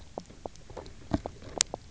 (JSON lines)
{"label": "biophony, knock croak", "recorder": "SoundTrap 300"}